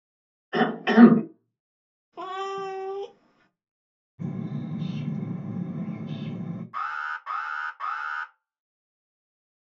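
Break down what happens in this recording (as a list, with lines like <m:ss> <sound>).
0:01 someone coughs loudly
0:02 a cat can be heard
0:04 the sound of a bird
0:07 you can hear an alarm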